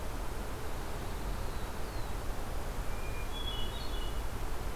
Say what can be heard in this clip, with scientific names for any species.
Setophaga caerulescens, Catharus guttatus